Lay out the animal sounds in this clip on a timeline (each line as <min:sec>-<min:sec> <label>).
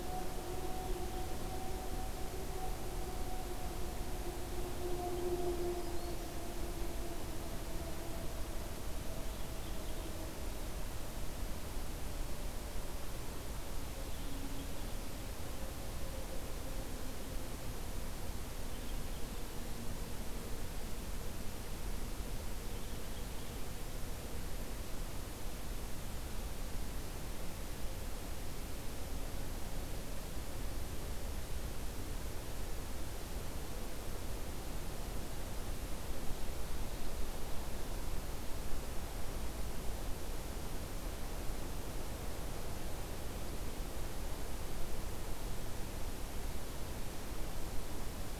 0:05.2-0:06.4 Black-throated Green Warbler (Setophaga virens)